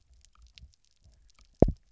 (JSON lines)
{"label": "biophony, double pulse", "recorder": "SoundTrap 300"}